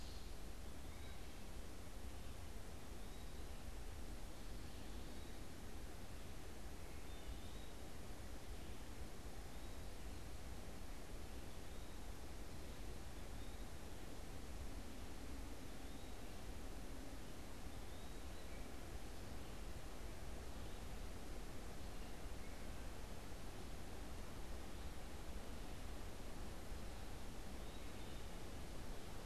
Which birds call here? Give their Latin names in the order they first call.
Contopus virens, Hylocichla mustelina